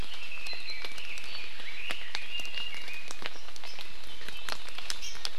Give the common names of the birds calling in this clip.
Red-billed Leiothrix, Hawaii Amakihi